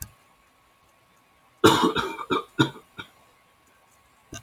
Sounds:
Cough